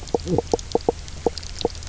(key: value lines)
label: biophony, knock croak
recorder: SoundTrap 300